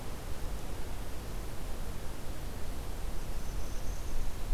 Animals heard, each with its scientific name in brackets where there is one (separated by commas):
Northern Parula (Setophaga americana)